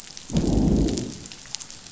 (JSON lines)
{"label": "biophony, growl", "recorder": "SoundTrap 500"}